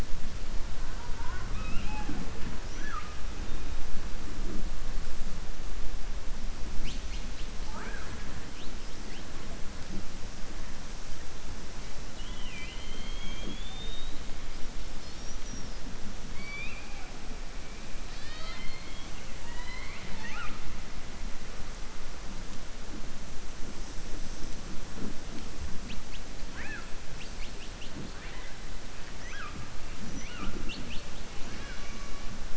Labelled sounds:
16.3	17.1	killer whale, southern resident, 0.78 to 4.6 kHz
19.3	20.6	killer whale, southern resident, 0.24 to 4.5 kHz

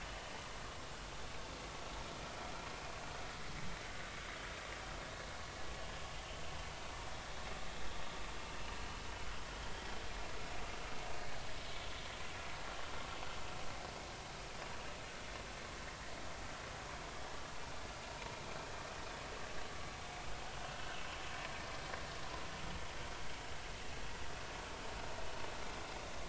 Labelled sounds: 3.8	4.1	vessel noise, 1.4 to 1.6 kHz

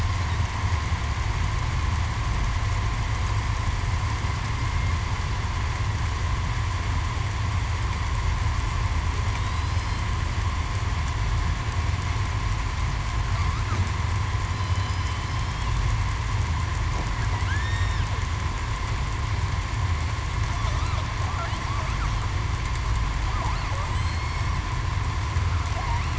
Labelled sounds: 9.4	9.7	killer whale, southern resident, 3.7 to 4.1 kHz
14.6	15.0	killer whale, southern resident, 3.0 to 3.1 kHz
15.3	15.6	killer whale, southern resident, 5.1 to 5.5 kHz
17.4	18.0	killer whale, southern resident, 1.3 to 3.7 kHz
21.8	22.1	killer whale, southern resident, 7.8 to 7.9 kHz
24.0	24.4	killer whale, southern resident, 4.1 to 4.4 kHz

